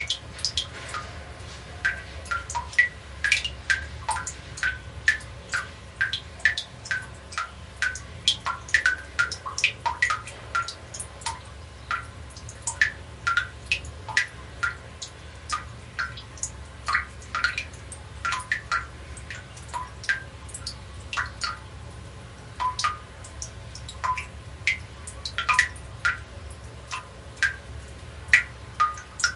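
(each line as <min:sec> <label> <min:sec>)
0:00.0 Water drips steadily. 0:29.4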